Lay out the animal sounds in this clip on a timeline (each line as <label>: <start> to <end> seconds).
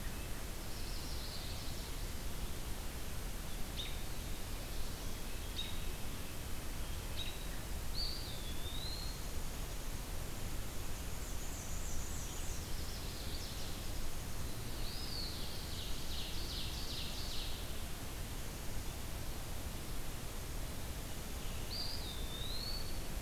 Chestnut-sided Warbler (Setophaga pensylvanica): 0.5 to 2.1 seconds
American Robin (Turdus migratorius): 3.7 to 4.0 seconds
American Robin (Turdus migratorius): 5.5 to 5.8 seconds
American Robin (Turdus migratorius): 7.1 to 7.4 seconds
Eastern Wood-Pewee (Contopus virens): 7.8 to 9.2 seconds
Black-and-white Warbler (Mniotilta varia): 11.1 to 12.6 seconds
Chestnut-sided Warbler (Setophaga pensylvanica): 12.6 to 13.7 seconds
Eastern Wood-Pewee (Contopus virens): 14.5 to 15.5 seconds
Ovenbird (Seiurus aurocapilla): 15.4 to 17.7 seconds
Eastern Wood-Pewee (Contopus virens): 21.6 to 23.2 seconds